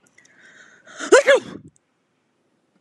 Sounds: Sneeze